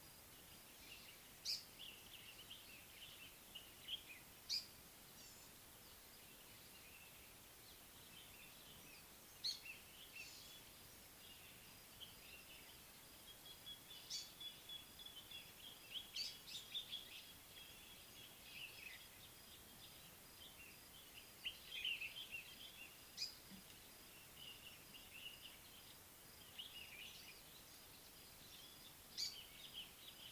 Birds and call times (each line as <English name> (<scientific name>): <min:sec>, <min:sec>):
Nubian Woodpecker (Campethera nubica): 0:14.7
Common Bulbul (Pycnonotus barbatus): 0:22.0